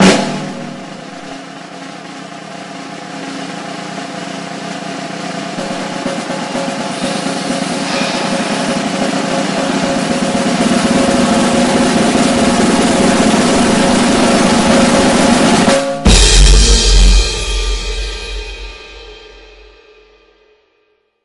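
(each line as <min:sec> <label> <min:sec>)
0:00.0 A loud drumbeat gradually increases in volume and then fades away. 0:21.2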